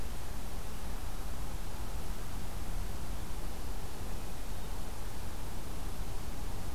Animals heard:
forest ambience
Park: Acadia National Park